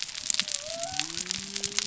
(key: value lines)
label: biophony
recorder: SoundTrap 300